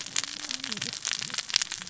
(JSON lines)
{"label": "biophony, cascading saw", "recorder": "SoundTrap 600 or HydroMoth"}